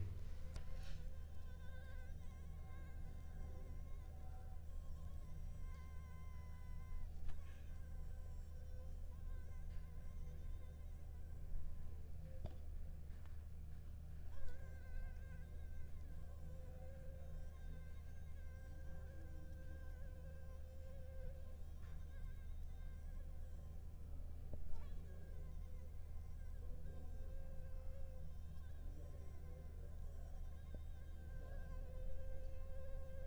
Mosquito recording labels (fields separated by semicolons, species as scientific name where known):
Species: Anopheles arabiensis; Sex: female; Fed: unfed; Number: one; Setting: cup